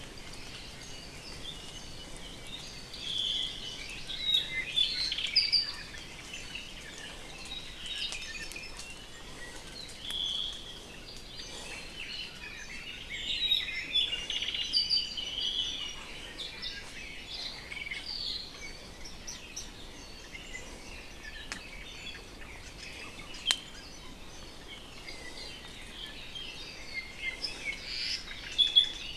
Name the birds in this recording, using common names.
Apapane, Omao, Hawaii Amakihi, Warbling White-eye, Iiwi